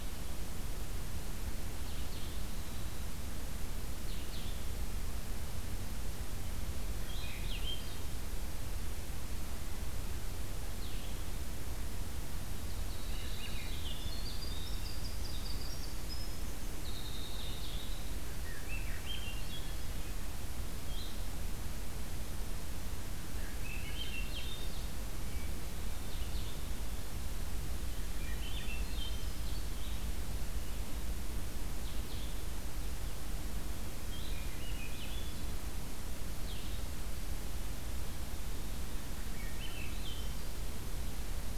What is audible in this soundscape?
Blue-headed Vireo, Swainson's Thrush, Winter Wren